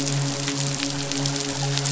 {"label": "biophony, midshipman", "recorder": "SoundTrap 500"}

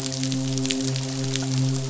{"label": "biophony, midshipman", "recorder": "SoundTrap 500"}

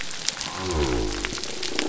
{"label": "biophony", "recorder": "SoundTrap 300"}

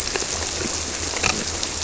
{"label": "biophony", "recorder": "SoundTrap 300"}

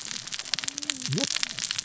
{"label": "biophony, cascading saw", "recorder": "SoundTrap 600 or HydroMoth"}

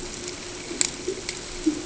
{"label": "ambient", "recorder": "HydroMoth"}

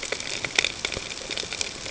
{"label": "ambient", "recorder": "HydroMoth"}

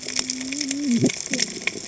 {"label": "biophony, cascading saw", "recorder": "HydroMoth"}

